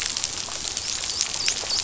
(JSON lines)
{"label": "biophony, dolphin", "recorder": "SoundTrap 500"}